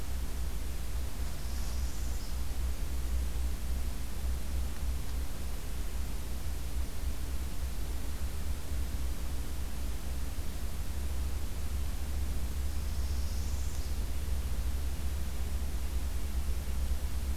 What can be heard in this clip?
Northern Parula